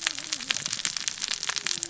{"label": "biophony, cascading saw", "recorder": "SoundTrap 600 or HydroMoth"}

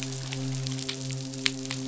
{"label": "biophony, midshipman", "recorder": "SoundTrap 500"}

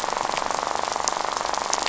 {"label": "biophony, rattle", "recorder": "SoundTrap 500"}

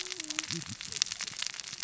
{"label": "biophony, cascading saw", "recorder": "SoundTrap 600 or HydroMoth"}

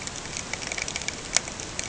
{"label": "ambient", "recorder": "HydroMoth"}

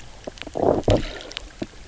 {"label": "biophony, low growl", "recorder": "SoundTrap 300"}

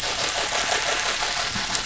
{"label": "anthrophony, boat engine", "recorder": "SoundTrap 500"}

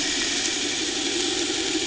{"label": "anthrophony, boat engine", "recorder": "HydroMoth"}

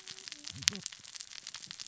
{"label": "biophony, cascading saw", "recorder": "SoundTrap 600 or HydroMoth"}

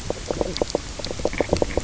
{"label": "biophony, knock croak", "recorder": "SoundTrap 300"}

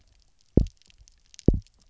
{"label": "biophony, double pulse", "recorder": "SoundTrap 300"}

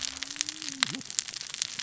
{"label": "biophony, cascading saw", "recorder": "SoundTrap 600 or HydroMoth"}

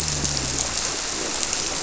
{"label": "biophony", "recorder": "SoundTrap 300"}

